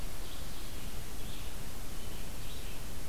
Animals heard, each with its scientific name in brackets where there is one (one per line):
Red-eyed Vireo (Vireo olivaceus)